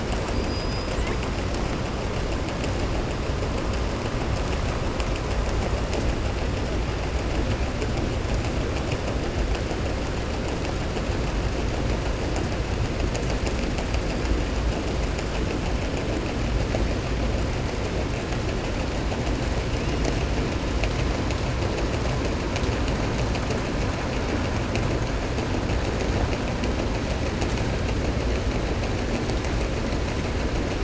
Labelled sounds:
0.2	0.9	killer whale, southern resident, 4.6 to 5.6 kHz

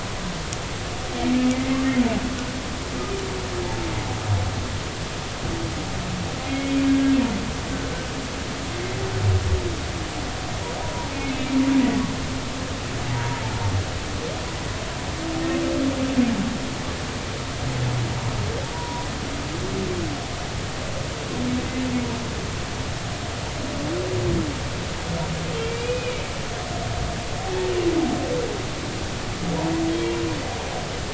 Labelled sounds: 6.4	6.7	humpback whale, 2.1 to 2.2 kHz
10.8	11.1	humpback whale, 0.90 to 1.0 kHz
13.1	13.4	humpback whale, 0.90 to 0.99 kHz
18.7	19.1	humpback whale, 0.90 to 1.0 kHz
25.6	26.2	humpback whale, 2.2 to 2.6 kHz
29.9	30.2	humpback whale, 3.2 to 3.3 kHz

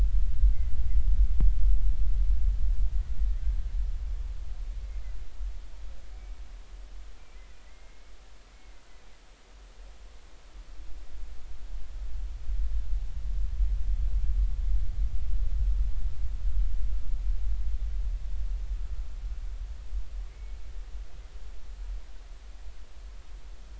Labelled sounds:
7.6	8.1	humpback whale, 1.9 to 2.3 kHz
20.3	20.6	humpback whale, 2.0 to 2.3 kHz

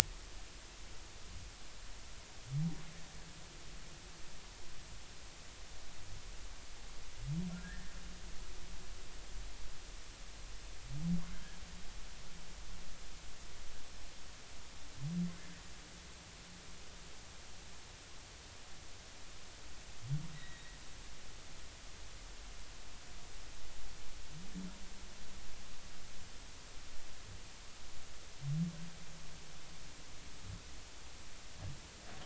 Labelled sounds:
7.5	8.0	humpback whale, 1.3 to 1.9 kHz
11.3	11.6	humpback whale, 1.5 to 1.8 kHz
20.3	20.8	humpback whale, 1.8 to 2.0 kHz

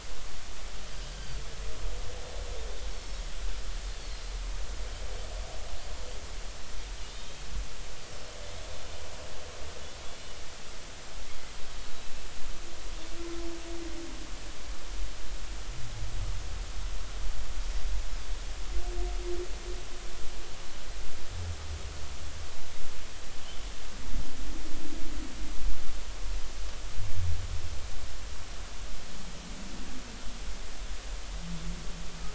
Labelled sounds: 4.0	4.3	Pacific white-sided dolphin, 4.0 to 4.5 kHz
7.1	7.4	Pacific white-sided dolphin, 3.1 to 3.8 kHz

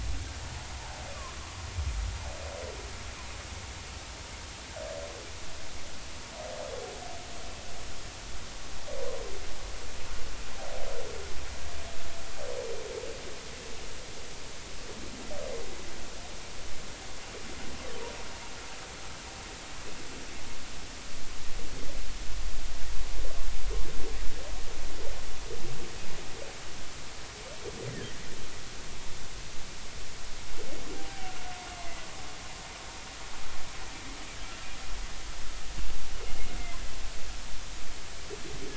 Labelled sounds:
31.0	32.0	humpback whale, 0.80 to 2.1 kHz

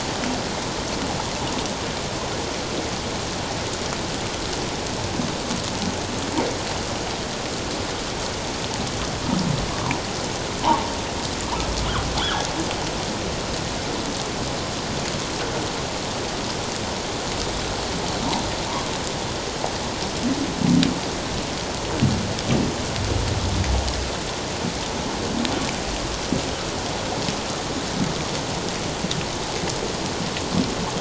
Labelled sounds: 12.2	12.5	humpback whale, 1.2 to 3.6 kHz

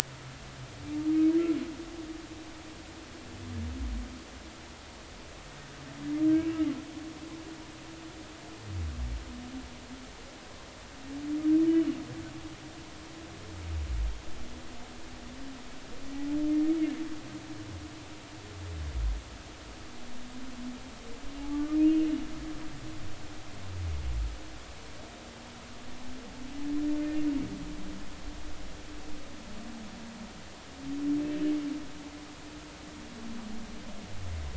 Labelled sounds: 21.4	22.1	humpback whale, 0.80 to 2.9 kHz

